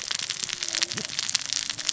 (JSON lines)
{"label": "biophony, cascading saw", "recorder": "SoundTrap 600 or HydroMoth"}